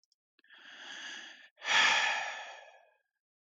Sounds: Sigh